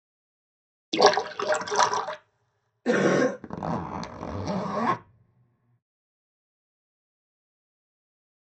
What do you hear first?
splash